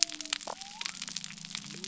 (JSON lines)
{"label": "biophony", "recorder": "SoundTrap 300"}